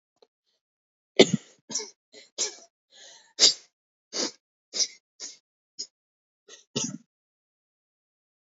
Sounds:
Sneeze